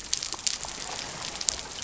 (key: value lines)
label: biophony
recorder: SoundTrap 300